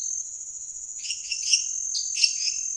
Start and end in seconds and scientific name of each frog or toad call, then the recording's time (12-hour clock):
0.0	2.7	Dendropsophus nanus
1.0	2.7	Dendropsophus minutus
8:00pm